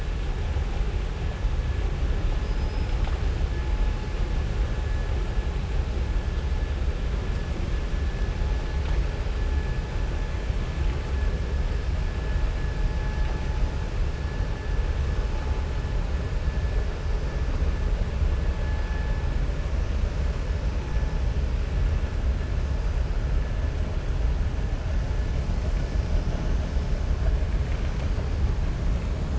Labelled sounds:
2.4	3.2	killer whale, southern resident, 0.75 to 5.3 kHz

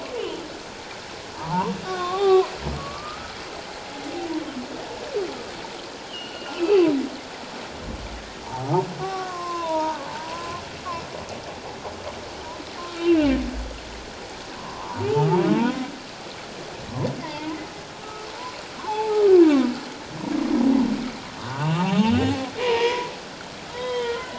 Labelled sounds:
1.3	2.5	humpback whale, 0.78 to 3.8 kHz
2.8	3.3	humpback whale, 1.1 to 1.4 kHz
6.0	6.9	humpback whale, 0.94 to 3.4 kHz
8.4	10.6	humpback whale, 0.78 to 1.3 kHz
12.9	13.3	humpback whale, 2.3 to 3.2 kHz
14.6	15.8	humpback whale, 0.78 to 2.7 kHz
17.2	17.6	humpback whale, 0.84 to 2.2 kHz
18.0	18.3	humpback whale, 1.2 to 1.4 kHz
18.8	19.2	humpback whale, 0.78 to 1.2 kHz
21.4	24.3	humpback whale, 0.78 to 3.3 kHz

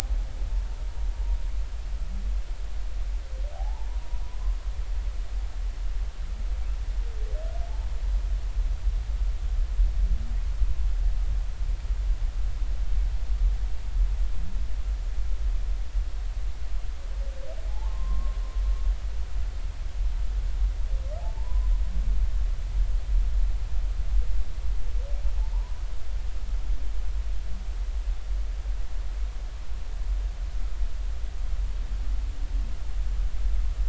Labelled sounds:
3.5	3.9	humpback whale, 0.80 to 1.0 kHz
17.7	18.4	humpback whale, 0.80 to 1.2 kHz
21.2	21.7	humpback whale, 0.80 to 1.1 kHz
25.5	25.8	humpback whale, 0.83 to 1.2 kHz

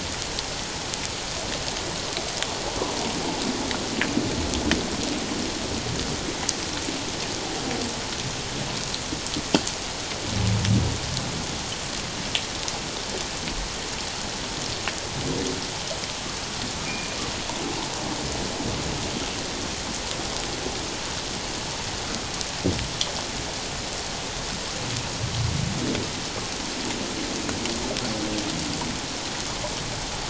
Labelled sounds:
16.8	17.1	humpback whale, 2.2 to 2.5 kHz

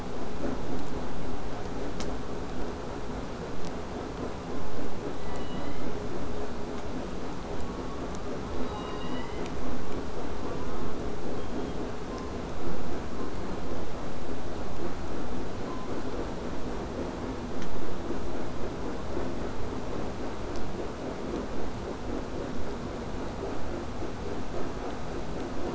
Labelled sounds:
10.4	11.0	killer whale, southern resident, J pod, call S04, 0.64 to 1.6 kHz
11.3	11.8	killer whale, southern resident, 2.9 to 3.5 kHz
12.1	12.5	killer whale, southern resident, 0.71 to 1.3 kHz
13.1	13.4	killer whale, southern resident, 0.71 to 1.3 kHz
15.6	16.0	killer whale, southern resident, 0.67 to 1.3 kHz

